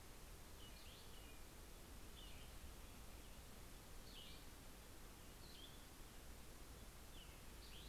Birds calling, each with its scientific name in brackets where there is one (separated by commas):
Cassin's Vireo (Vireo cassinii)